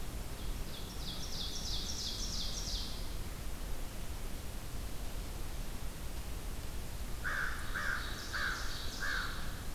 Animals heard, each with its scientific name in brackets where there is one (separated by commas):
Ovenbird (Seiurus aurocapilla), American Crow (Corvus brachyrhynchos)